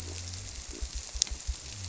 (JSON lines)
{"label": "biophony", "recorder": "SoundTrap 300"}